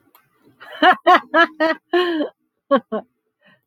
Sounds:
Laughter